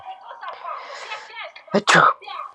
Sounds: Sneeze